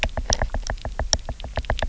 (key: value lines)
label: biophony, knock
recorder: SoundTrap 300